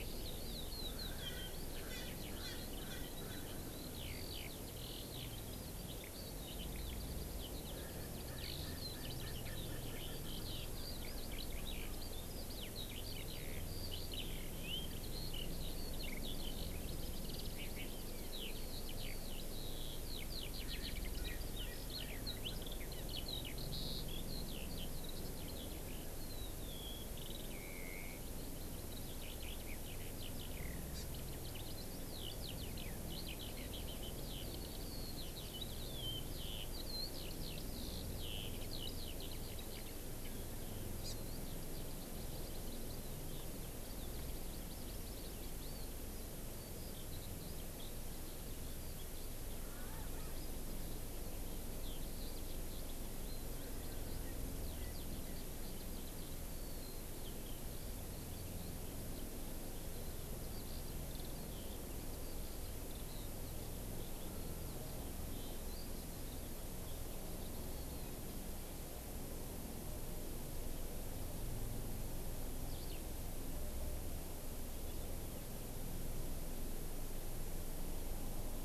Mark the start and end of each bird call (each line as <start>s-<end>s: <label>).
0.0s-40.4s: Eurasian Skylark (Alauda arvensis)
0.9s-3.8s: Erckel's Francolin (Pternistis erckelii)
7.7s-10.5s: Erckel's Francolin (Pternistis erckelii)
20.6s-22.8s: Erckel's Francolin (Pternistis erckelii)
31.0s-31.1s: Hawaii Amakihi (Chlorodrepanis virens)
41.1s-41.2s: Hawaii Amakihi (Chlorodrepanis virens)
41.3s-68.2s: Eurasian Skylark (Alauda arvensis)
72.7s-73.0s: Eurasian Skylark (Alauda arvensis)